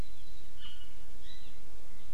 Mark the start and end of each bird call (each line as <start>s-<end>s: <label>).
0.6s-1.1s: Iiwi (Drepanis coccinea)